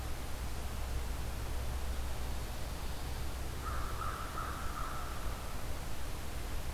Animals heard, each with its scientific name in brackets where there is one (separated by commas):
American Crow (Corvus brachyrhynchos), Pine Warbler (Setophaga pinus)